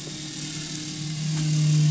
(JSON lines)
{"label": "anthrophony, boat engine", "recorder": "SoundTrap 500"}